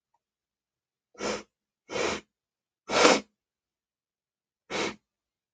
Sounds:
Sniff